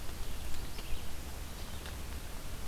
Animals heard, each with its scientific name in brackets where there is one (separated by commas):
Red-eyed Vireo (Vireo olivaceus)